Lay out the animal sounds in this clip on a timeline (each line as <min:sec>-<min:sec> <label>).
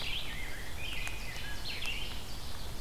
0:00.0-0:02.2 Rose-breasted Grosbeak (Pheucticus ludovicianus)
0:00.0-0:02.8 Red-eyed Vireo (Vireo olivaceus)
0:00.5-0:02.8 Ovenbird (Seiurus aurocapilla)